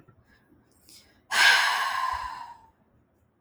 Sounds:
Sigh